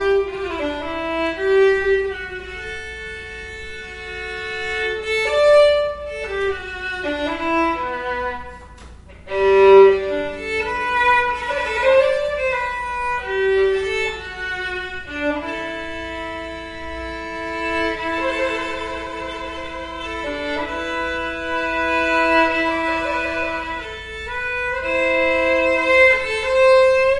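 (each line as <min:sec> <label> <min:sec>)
0:00.0 A violin is being played in a beautiful and sad manner. 0:27.2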